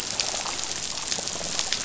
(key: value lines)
label: biophony, rattle
recorder: SoundTrap 500